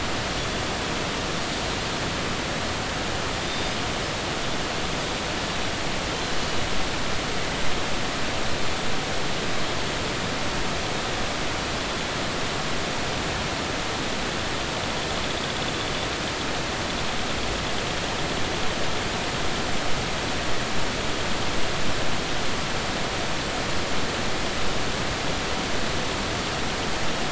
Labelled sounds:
3.5	3.7	Pacific white-sided dolphin, 3.6 to 3.7 kHz

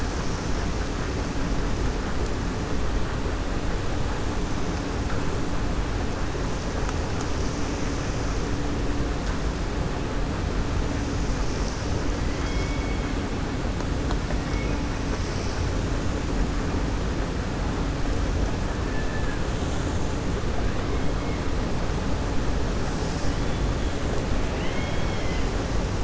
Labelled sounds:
12.2	13.1	killer whale, 1.4 to 6.3 kHz
18.8	19.4	killer whale, 1.6 to 2.7 kHz
24.4	25.5	killer whale, 1.5 to 3.4 kHz

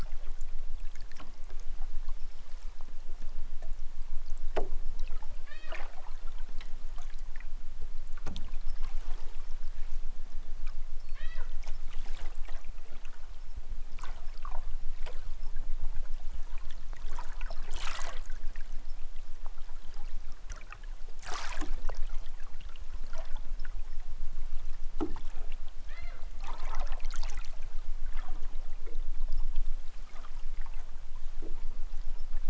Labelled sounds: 5.4	5.8	killer whale, southern Alaska resident, 0.28 to 5.5 kHz
11.0	11.5	killer whale, southern Alaska resident, 0.37 to 6.1 kHz
25.8	26.3	killer whale, southern Alaska resident, 0.23 to 5.5 kHz

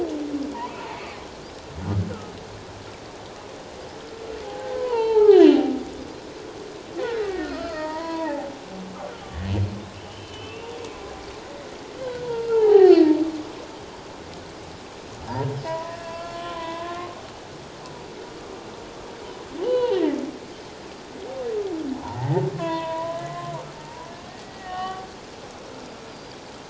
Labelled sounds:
4.4	5.5	humpback whale, 0.78 to 4.5 kHz
7.2	8.5	humpback whale, 0.78 to 5.2 kHz
10.1	10.7	humpback whale, 2.5 to 3.1 kHz
12.0	13.1	humpback whale, 0.78 to 4.8 kHz
15.6	17.0	humpback whale, 0.91 to 3.5 kHz
19.6	20.0	humpback whale, 0.78 to 4.0 kHz
22.0	25.1	humpback whale, 0.78 to 3.6 kHz
26.1	26.3	Pacific white-sided dolphin, 4.6 to 4.9 kHz

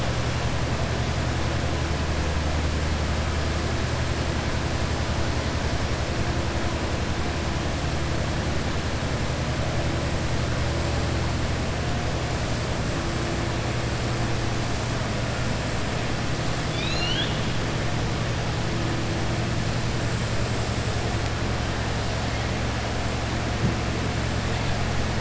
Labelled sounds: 16.6	17.4	killer whale, southern resident, 1.5 to 6.9 kHz

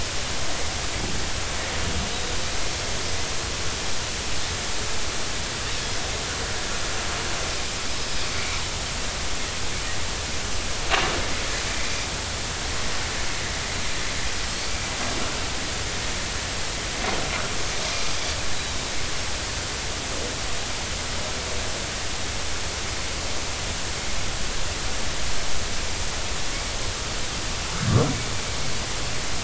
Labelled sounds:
7.9	8.6	Pacific white-sided dolphin, 2.1 to 5.2 kHz
18.6	18.8	Pacific white-sided dolphin, 3.7 to 4.0 kHz

